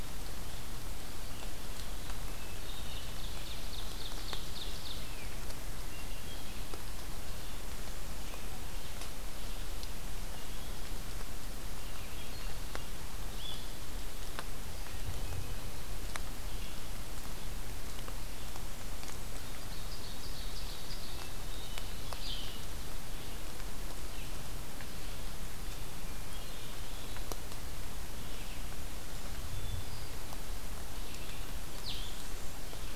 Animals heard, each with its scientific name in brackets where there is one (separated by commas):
Ovenbird (Seiurus aurocapilla), Blue-headed Vireo (Vireo solitarius), Blackburnian Warbler (Setophaga fusca), Red-eyed Vireo (Vireo olivaceus)